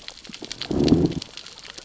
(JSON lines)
{"label": "biophony, growl", "recorder": "SoundTrap 600 or HydroMoth"}